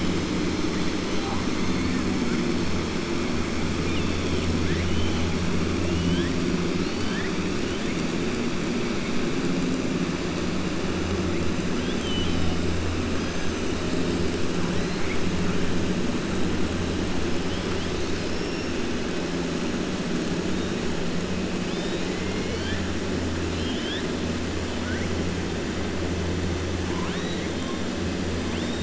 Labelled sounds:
3.8	5.3	killer whale, 1.6 to 4.1 kHz
6.7	7.3	killer whale, 1.5 to 5.1 kHz
11.7	12.5	killer whale, 2.9 to 3.9 kHz
17.7	18.7	killer whale, 3.0 to 5.5 kHz
21.6	22.8	killer whale, 1.6 to 5.1 kHz
23.4	24.1	killer whale, 1.6 to 4.5 kHz

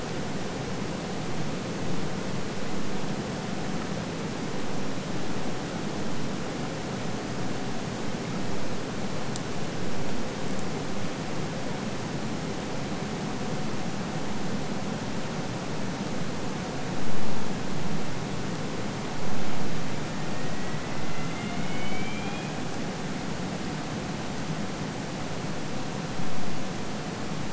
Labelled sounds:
19.8	22.7	killer whale, Bigg's (transient), AT1 transient, 1.2 to 4.3 kHz

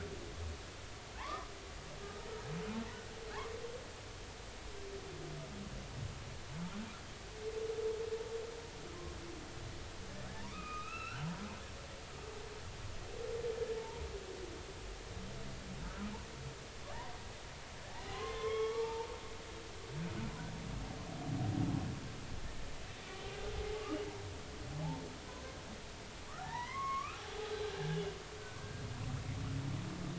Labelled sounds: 1.2	1.5	humpback whale, 0.80 to 1.3 kHz
10.3	11.3	humpback whale, 0.83 to 4.2 kHz
13.8	14.0	humpback whale, 0.83 to 1.0 kHz
18.1	19.1	humpback whale, 0.86 to 3.3 kHz
23.8	24.1	humpback whale, 2.8 to 3.0 kHz
26.4	27.3	humpback whale, 0.80 to 6.6 kHz
27.6	28.0	humpback whale, 1.5 to 1.8 kHz

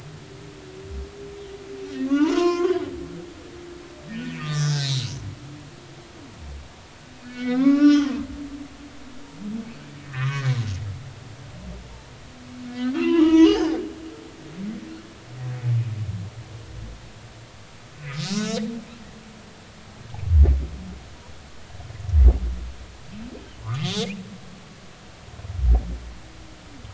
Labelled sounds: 2.0	2.8	humpback whale, 0.83 to 6.4 kHz
4.1	5.1	humpback whale, 1.1 to 4.4 kHz
7.2	8.2	humpback whale, 0.99 to 5.9 kHz
10.0	10.5	humpback whale, 0.96 to 2.6 kHz
12.7	13.8	humpback whale, 0.86 to 6.4 kHz
17.9	18.6	humpback whale, 1.2 to 3.2 kHz
23.6	24.1	humpback whale, 0.90 to 6.5 kHz

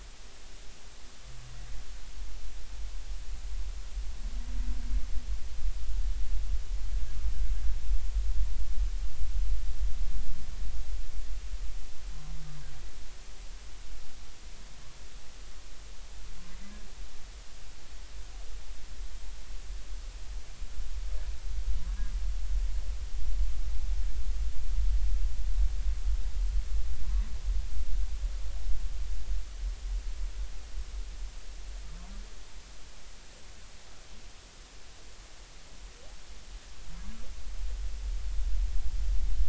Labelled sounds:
21.9	22.1	humpback whale, 1.6 to 1.7 kHz

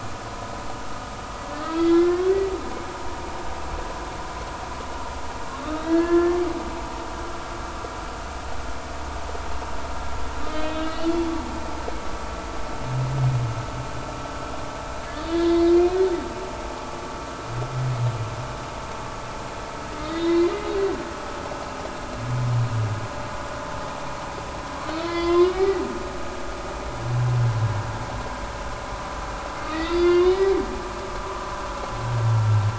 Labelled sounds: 1.6	2.2	humpback whale, 1.2 to 3.5 kHz
5.7	6.4	humpback whale, 0.99 to 3.9 kHz
10.5	11.2	humpback whale, 2.8 to 4.4 kHz
15.3	15.7	humpback whale, 1.6 to 3.8 kHz
20.0	20.5	humpback whale, 1.8 to 5.5 kHz
25.0	25.8	humpback whale, 0.99 to 4.5 kHz
29.7	30.5	humpback whale, 0.99 to 4.6 kHz
31.2	31.5	humpback whale, 3.5 to 3.8 kHz

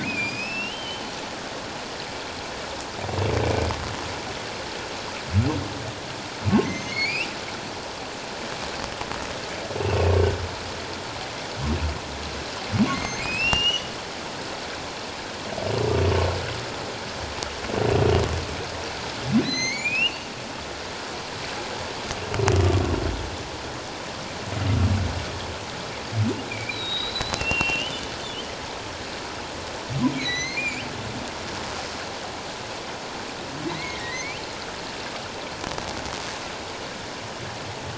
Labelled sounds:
0.0	1.1	humpback whale, 1.9 to 5.6 kHz
6.6	7.3	humpback whale, 1.8 to 6.6 kHz
9.9	10.2	humpback whale, 2.5 to 2.9 kHz
12.9	13.9	humpback whale, 2.0 to 6.5 kHz
19.4	20.3	humpback whale, 1.9 to 6.5 kHz
26.5	28.1	humpback whale, 2.2 to 4.1 kHz
30.0	30.8	humpback whale, 1.9 to 6.4 kHz
33.7	34.4	humpback whale, 1.8 to 2.5 kHz

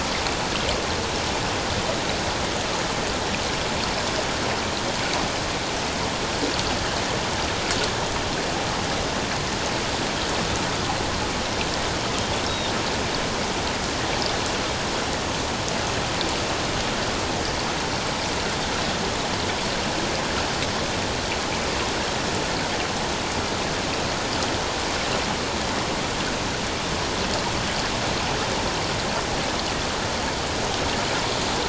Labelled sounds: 12.4	12.7	Pacific white-sided dolphin, 3.6 to 3.9 kHz

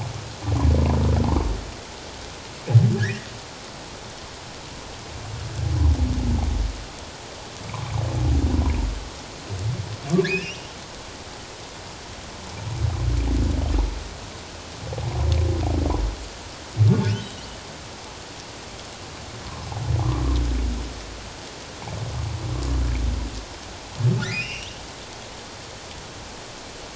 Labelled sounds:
3.0	3.3	humpback whale, 1.4 to 2.0 kHz
10.2	10.7	humpback whale, 1.6 to 5.3 kHz
17.1	17.4	humpback whale, 2.8 to 3.2 kHz
24.3	24.7	humpback whale, 2.3 to 5.0 kHz

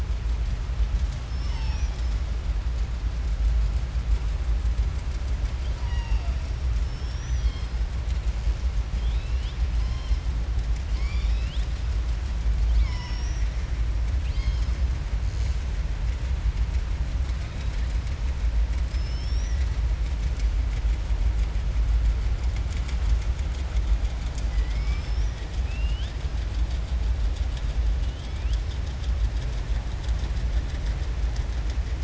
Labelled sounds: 10.8	11.7	killer whale, southern resident, 2.0 to 7.2 kHz
12.6	13.5	killer whale, southern resident, 0.98 to 6.6 kHz
18.8	19.7	killer whale, southern resident, 1.9 to 6.0 kHz
24.4	25.1	killer whale, southern resident, 1.3 to 3.4 kHz

